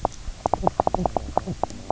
{"label": "biophony, knock croak", "recorder": "SoundTrap 300"}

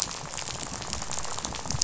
{"label": "biophony, rattle", "recorder": "SoundTrap 500"}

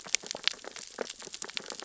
{"label": "biophony, sea urchins (Echinidae)", "recorder": "SoundTrap 600 or HydroMoth"}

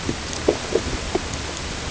{"label": "ambient", "recorder": "HydroMoth"}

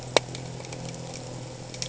{"label": "anthrophony, boat engine", "recorder": "HydroMoth"}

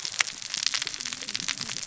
{"label": "biophony, cascading saw", "recorder": "SoundTrap 600 or HydroMoth"}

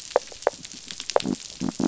{"label": "biophony", "recorder": "SoundTrap 500"}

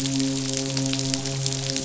{"label": "biophony, midshipman", "recorder": "SoundTrap 500"}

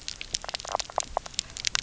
{"label": "biophony, knock croak", "recorder": "SoundTrap 300"}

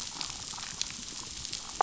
{"label": "biophony, damselfish", "recorder": "SoundTrap 500"}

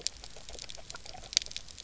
{"label": "biophony, grazing", "recorder": "SoundTrap 300"}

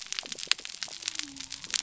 {"label": "biophony", "recorder": "SoundTrap 300"}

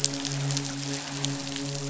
{"label": "biophony, midshipman", "recorder": "SoundTrap 500"}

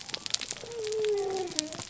{"label": "biophony", "recorder": "SoundTrap 300"}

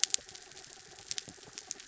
{"label": "anthrophony, mechanical", "recorder": "SoundTrap 300"}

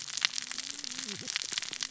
{"label": "biophony, cascading saw", "recorder": "SoundTrap 600 or HydroMoth"}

